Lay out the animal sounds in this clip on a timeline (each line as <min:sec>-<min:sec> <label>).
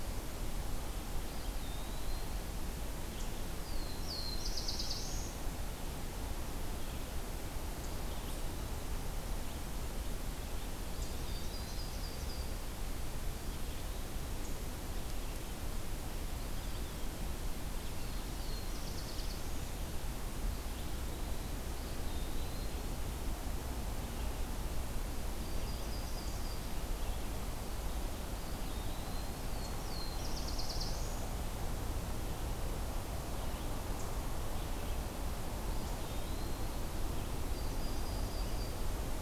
0:01.2-0:02.4 Eastern Wood-Pewee (Contopus virens)
0:03.5-0:05.4 Black-throated Blue Warbler (Setophaga caerulescens)
0:10.8-0:12.0 Eastern Wood-Pewee (Contopus virens)
0:11.0-0:12.6 Yellow-rumped Warbler (Setophaga coronata)
0:16.3-0:17.2 Eastern Wood-Pewee (Contopus virens)
0:17.9-0:19.7 Black-throated Blue Warbler (Setophaga caerulescens)
0:21.6-0:23.0 Eastern Wood-Pewee (Contopus virens)
0:25.1-0:26.7 Yellow-rumped Warbler (Setophaga coronata)
0:28.1-0:29.5 Eastern Wood-Pewee (Contopus virens)
0:29.4-0:31.2 Black-throated Blue Warbler (Setophaga caerulescens)
0:35.6-0:36.9 Eastern Wood-Pewee (Contopus virens)
0:37.4-0:38.8 Yellow-rumped Warbler (Setophaga coronata)